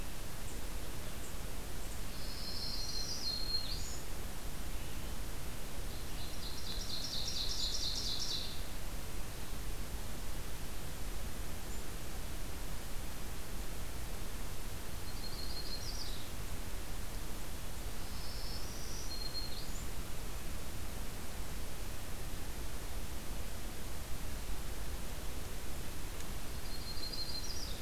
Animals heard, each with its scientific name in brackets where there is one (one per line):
Ovenbird (Seiurus aurocapilla)
Yellow-rumped Warbler (Setophaga coronata)
Black-throated Green Warbler (Setophaga virens)